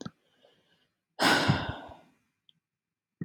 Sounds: Sigh